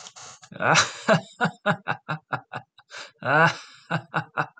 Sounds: Laughter